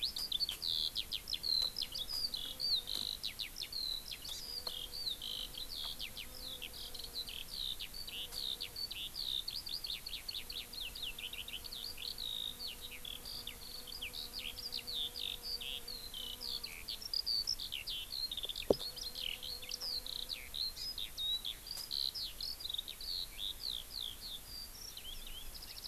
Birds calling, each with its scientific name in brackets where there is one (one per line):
Eurasian Skylark (Alauda arvensis)
Japanese Bush Warbler (Horornis diphone)